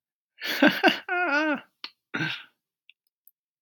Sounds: Laughter